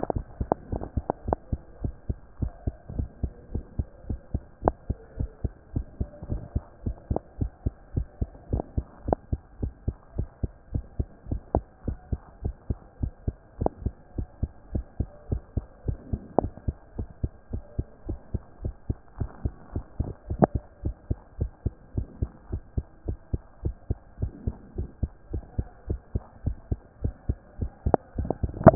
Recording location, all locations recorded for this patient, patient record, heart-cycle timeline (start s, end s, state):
mitral valve (MV)
aortic valve (AV)+pulmonary valve (PV)+tricuspid valve (TV)+mitral valve (MV)
#Age: Child
#Sex: Female
#Height: 120.0 cm
#Weight: 20.0 kg
#Pregnancy status: False
#Murmur: Absent
#Murmur locations: nan
#Most audible location: nan
#Systolic murmur timing: nan
#Systolic murmur shape: nan
#Systolic murmur grading: nan
#Systolic murmur pitch: nan
#Systolic murmur quality: nan
#Diastolic murmur timing: nan
#Diastolic murmur shape: nan
#Diastolic murmur grading: nan
#Diastolic murmur pitch: nan
#Diastolic murmur quality: nan
#Outcome: Abnormal
#Campaign: 2014 screening campaign
0.00	1.70	unannotated
1.70	1.82	diastole
1.82	1.94	S1
1.94	2.08	systole
2.08	2.18	S2
2.18	2.40	diastole
2.40	2.52	S1
2.52	2.66	systole
2.66	2.74	S2
2.74	2.96	diastole
2.96	3.08	S1
3.08	3.22	systole
3.22	3.32	S2
3.32	3.52	diastole
3.52	3.64	S1
3.64	3.78	systole
3.78	3.86	S2
3.86	4.08	diastole
4.08	4.20	S1
4.20	4.32	systole
4.32	4.42	S2
4.42	4.64	diastole
4.64	4.76	S1
4.76	4.88	systole
4.88	4.98	S2
4.98	5.18	diastole
5.18	5.30	S1
5.30	5.42	systole
5.42	5.52	S2
5.52	5.74	diastole
5.74	5.86	S1
5.86	5.98	systole
5.98	6.08	S2
6.08	6.30	diastole
6.30	6.42	S1
6.42	6.54	systole
6.54	6.64	S2
6.64	6.84	diastole
6.84	6.96	S1
6.96	7.10	systole
7.10	7.20	S2
7.20	7.40	diastole
7.40	7.50	S1
7.50	7.64	systole
7.64	7.74	S2
7.74	7.94	diastole
7.94	8.06	S1
8.06	8.20	systole
8.20	8.30	S2
8.30	8.52	diastole
8.52	8.64	S1
8.64	8.76	systole
8.76	8.86	S2
8.86	9.06	diastole
9.06	9.18	S1
9.18	9.30	systole
9.30	9.40	S2
9.40	9.60	diastole
9.60	9.72	S1
9.72	9.86	systole
9.86	9.96	S2
9.96	10.16	diastole
10.16	10.28	S1
10.28	10.42	systole
10.42	10.50	S2
10.50	10.72	diastole
10.72	10.84	S1
10.84	10.98	systole
10.98	11.08	S2
11.08	11.30	diastole
11.30	11.42	S1
11.42	11.54	systole
11.54	11.64	S2
11.64	11.86	diastole
11.86	11.98	S1
11.98	12.10	systole
12.10	12.20	S2
12.20	12.44	diastole
12.44	12.54	S1
12.54	12.68	systole
12.68	12.78	S2
12.78	13.00	diastole
13.00	13.12	S1
13.12	13.26	systole
13.26	13.36	S2
13.36	13.60	diastole
13.60	13.72	S1
13.72	13.84	systole
13.84	13.94	S2
13.94	14.16	diastole
14.16	14.28	S1
14.28	14.42	systole
14.42	14.50	S2
14.50	14.72	diastole
14.72	14.84	S1
14.84	14.98	systole
14.98	15.08	S2
15.08	15.30	diastole
15.30	15.42	S1
15.42	15.56	systole
15.56	15.64	S2
15.64	15.86	diastole
15.86	15.98	S1
15.98	16.12	systole
16.12	16.22	S2
16.22	16.40	diastole
16.40	16.52	S1
16.52	16.66	systole
16.66	16.76	S2
16.76	16.96	diastole
16.96	17.08	S1
17.08	17.22	systole
17.22	17.32	S2
17.32	17.52	diastole
17.52	17.62	S1
17.62	17.78	systole
17.78	17.86	S2
17.86	18.08	diastole
18.08	18.18	S1
18.18	18.32	systole
18.32	18.42	S2
18.42	18.62	diastole
18.62	18.74	S1
18.74	18.88	systole
18.88	18.96	S2
18.96	19.18	diastole
19.18	19.30	S1
19.30	19.44	systole
19.44	19.54	S2
19.54	19.75	diastole
19.75	28.75	unannotated